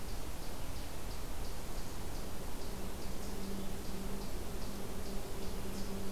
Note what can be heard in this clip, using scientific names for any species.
Tamias striatus